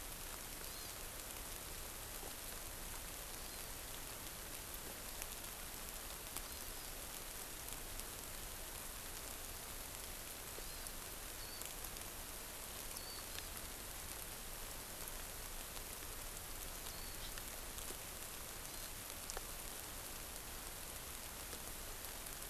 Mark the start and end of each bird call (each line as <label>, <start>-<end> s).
Warbling White-eye (Zosterops japonicus), 11.4-11.7 s
Warbling White-eye (Zosterops japonicus), 12.9-13.2 s
Warbling White-eye (Zosterops japonicus), 16.9-17.2 s